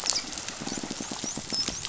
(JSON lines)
{"label": "biophony, dolphin", "recorder": "SoundTrap 500"}
{"label": "biophony", "recorder": "SoundTrap 500"}